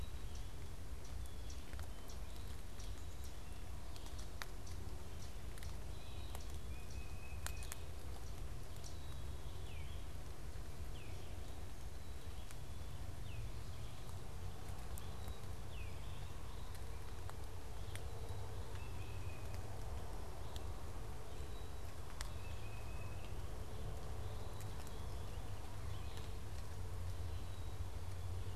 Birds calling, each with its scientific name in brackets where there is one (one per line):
unidentified bird
Black-capped Chickadee (Poecile atricapillus)
Tufted Titmouse (Baeolophus bicolor)